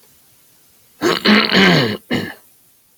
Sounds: Throat clearing